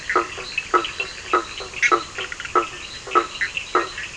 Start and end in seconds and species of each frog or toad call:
0.0	1.4	two-colored oval frog
0.0	4.1	blacksmith tree frog
0.0	4.1	fine-lined tree frog
0.0	4.1	Cochran's lime tree frog
1.4	4.1	Bischoff's tree frog
10:15pm

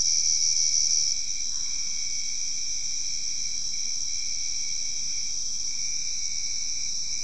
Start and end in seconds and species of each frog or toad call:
1.4	2.1	Boana albopunctata
9:30pm

